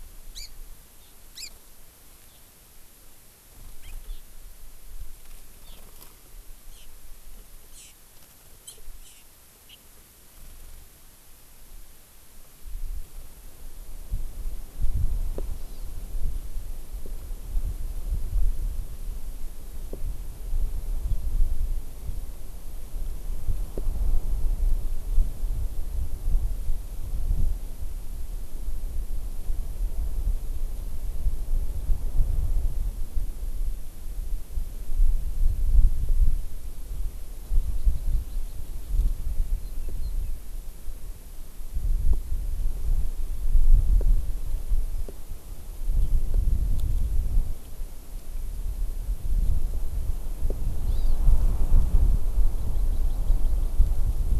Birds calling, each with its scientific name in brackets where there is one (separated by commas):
Hawaii Amakihi (Chlorodrepanis virens), Eurasian Skylark (Alauda arvensis)